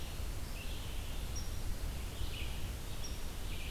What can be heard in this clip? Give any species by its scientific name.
Vireo olivaceus